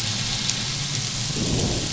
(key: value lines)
label: anthrophony, boat engine
recorder: SoundTrap 500